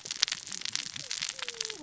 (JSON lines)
{"label": "biophony, cascading saw", "recorder": "SoundTrap 600 or HydroMoth"}